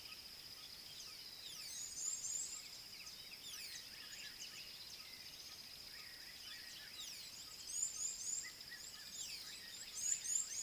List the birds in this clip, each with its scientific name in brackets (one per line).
Red-cheeked Cordonbleu (Uraeginthus bengalus)